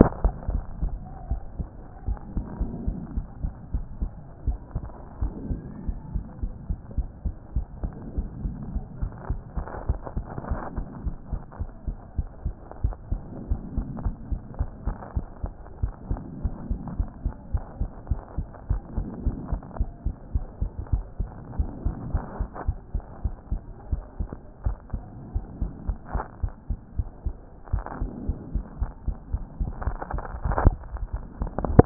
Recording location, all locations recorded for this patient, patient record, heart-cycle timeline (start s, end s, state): pulmonary valve (PV)
aortic valve (AV)+pulmonary valve (PV)+tricuspid valve (TV)+mitral valve (MV)
#Age: Child
#Sex: Female
#Height: 103.0 cm
#Weight: 17.3 kg
#Pregnancy status: False
#Murmur: Absent
#Murmur locations: nan
#Most audible location: nan
#Systolic murmur timing: nan
#Systolic murmur shape: nan
#Systolic murmur grading: nan
#Systolic murmur pitch: nan
#Systolic murmur quality: nan
#Diastolic murmur timing: nan
#Diastolic murmur shape: nan
#Diastolic murmur grading: nan
#Diastolic murmur pitch: nan
#Diastolic murmur quality: nan
#Outcome: Normal
#Campaign: 2014 screening campaign
0.00	4.26	unannotated
4.26	4.46	diastole
4.46	4.58	S1
4.58	4.74	systole
4.74	4.84	S2
4.84	5.20	diastole
5.20	5.32	S1
5.32	5.48	systole
5.48	5.60	S2
5.60	5.86	diastole
5.86	5.98	S1
5.98	6.14	systole
6.14	6.24	S2
6.24	6.42	diastole
6.42	6.52	S1
6.52	6.68	systole
6.68	6.78	S2
6.78	6.96	diastole
6.96	7.08	S1
7.08	7.24	systole
7.24	7.34	S2
7.34	7.54	diastole
7.54	7.66	S1
7.66	7.82	systole
7.82	7.92	S2
7.92	8.16	diastole
8.16	8.28	S1
8.28	8.42	systole
8.42	8.54	S2
8.54	8.72	diastole
8.72	8.84	S1
8.84	9.00	systole
9.00	9.10	S2
9.10	9.30	diastole
9.30	9.40	S1
9.40	9.56	systole
9.56	9.66	S2
9.66	9.88	diastole
9.88	10.00	S1
10.00	10.16	systole
10.16	10.26	S2
10.26	10.50	diastole
10.50	10.60	S1
10.60	10.76	systole
10.76	10.86	S2
10.86	11.04	diastole
11.04	11.16	S1
11.16	11.30	systole
11.30	11.42	S2
11.42	11.60	diastole
11.60	11.70	S1
11.70	11.86	systole
11.86	11.96	S2
11.96	12.18	diastole
12.18	12.28	S1
12.28	12.44	systole
12.44	12.54	S2
12.54	12.82	diastole
12.82	12.96	S1
12.96	13.10	systole
13.10	13.22	S2
13.22	13.50	diastole
13.50	13.60	S1
13.60	13.76	systole
13.76	13.86	S2
13.86	14.04	diastole
14.04	14.14	S1
14.14	14.30	systole
14.30	14.40	S2
14.40	14.58	diastole
14.58	14.70	S1
14.70	14.86	systole
14.86	14.96	S2
14.96	15.16	diastole
15.16	15.26	S1
15.26	15.42	systole
15.42	15.52	S2
15.52	15.82	diastole
15.82	15.94	S1
15.94	16.10	systole
16.10	16.20	S2
16.20	16.42	diastole
16.42	16.54	S1
16.54	16.70	systole
16.70	16.78	S2
16.78	16.98	diastole
16.98	17.08	S1
17.08	17.24	systole
17.24	17.34	S2
17.34	17.52	diastole
17.52	17.64	S1
17.64	17.80	systole
17.80	17.90	S2
17.90	18.10	diastole
18.10	18.20	S1
18.20	18.36	systole
18.36	18.46	S2
18.46	18.70	diastole
18.70	18.82	S1
18.82	18.96	systole
18.96	19.06	S2
19.06	19.24	diastole
19.24	19.36	S1
19.36	19.50	systole
19.50	19.60	S2
19.60	19.78	diastole
19.78	19.90	S1
19.90	20.04	systole
20.04	20.14	S2
20.14	20.34	diastole
20.34	20.46	S1
20.46	20.60	systole
20.60	20.70	S2
20.70	20.92	diastole
20.92	21.04	S1
21.04	21.18	systole
21.18	21.30	S2
21.30	21.58	diastole
21.58	21.70	S1
21.70	21.84	systole
21.84	21.94	S2
21.94	22.12	diastole
22.12	22.24	S1
22.24	22.38	systole
22.38	22.48	S2
22.48	22.66	diastole
22.66	22.78	S1
22.78	22.94	systole
22.94	23.02	S2
23.02	23.24	diastole
23.24	23.34	S1
23.34	23.50	systole
23.50	23.60	S2
23.60	23.90	diastole
23.90	24.02	S1
24.02	24.18	systole
24.18	24.28	S2
24.28	24.64	diastole
24.64	24.76	S1
24.76	24.92	systole
24.92	25.02	S2
25.02	25.34	diastole
25.34	25.46	S1
25.46	25.60	systole
25.60	25.70	S2
25.70	25.88	diastole
25.88	25.98	S1
25.98	26.14	systole
26.14	26.24	S2
26.24	26.42	diastole
26.42	26.52	S1
26.52	26.68	systole
26.68	26.78	S2
26.78	26.98	diastole
26.98	27.08	S1
27.08	27.24	systole
27.24	27.36	S2
27.36	27.72	diastole
27.72	27.84	S1
27.84	28.00	systole
28.00	28.10	S2
28.10	28.26	diastole
28.26	28.38	S1
28.38	28.54	systole
28.54	28.62	S2
28.62	28.80	diastole
28.80	28.90	S1
28.90	28.96	systole
28.96	31.86	unannotated